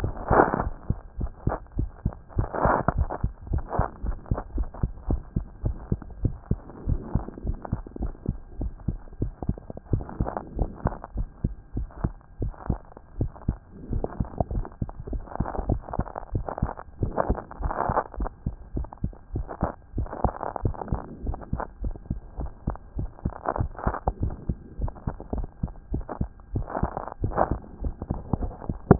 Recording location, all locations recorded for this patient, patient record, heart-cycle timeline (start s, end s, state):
mitral valve (MV)
aortic valve (AV)+pulmonary valve (PV)+tricuspid valve (TV)+mitral valve (MV)
#Age: Child
#Sex: Male
#Height: 126.0 cm
#Weight: 20.6 kg
#Pregnancy status: False
#Murmur: Unknown
#Murmur locations: nan
#Most audible location: nan
#Systolic murmur timing: nan
#Systolic murmur shape: nan
#Systolic murmur grading: nan
#Systolic murmur pitch: nan
#Systolic murmur quality: nan
#Diastolic murmur timing: nan
#Diastolic murmur shape: nan
#Diastolic murmur grading: nan
#Diastolic murmur pitch: nan
#Diastolic murmur quality: nan
#Outcome: Normal
#Campaign: 2014 screening campaign
0.00	2.94	unannotated
2.94	2.96	diastole
2.96	3.08	S1
3.08	3.22	systole
3.22	3.32	S2
3.32	3.50	diastole
3.50	3.64	S1
3.64	3.78	systole
3.78	3.86	S2
3.86	4.04	diastole
4.04	4.16	S1
4.16	4.30	systole
4.30	4.40	S2
4.40	4.54	diastole
4.54	4.68	S1
4.68	4.82	systole
4.82	4.92	S2
4.92	5.08	diastole
5.08	5.20	S1
5.20	5.36	systole
5.36	5.44	S2
5.44	5.64	diastole
5.64	5.76	S1
5.76	5.90	systole
5.90	6.00	S2
6.00	6.22	diastole
6.22	6.34	S1
6.34	6.50	systole
6.50	6.58	S2
6.58	6.86	diastole
6.86	7.00	S1
7.00	7.14	systole
7.14	7.24	S2
7.24	7.46	diastole
7.46	7.58	S1
7.58	7.72	systole
7.72	7.82	S2
7.82	8.00	diastole
8.00	8.12	S1
8.12	8.28	systole
8.28	8.36	S2
8.36	8.60	diastole
8.60	8.72	S1
8.72	8.88	systole
8.88	8.98	S2
8.98	9.20	diastole
9.20	9.32	S1
9.32	9.46	systole
9.46	9.56	S2
9.56	9.92	diastole
9.92	28.99	unannotated